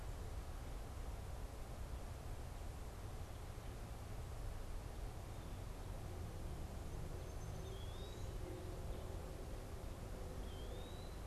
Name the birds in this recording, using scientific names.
Contopus virens